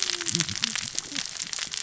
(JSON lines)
{"label": "biophony, cascading saw", "recorder": "SoundTrap 600 or HydroMoth"}